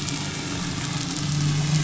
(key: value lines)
label: anthrophony, boat engine
recorder: SoundTrap 500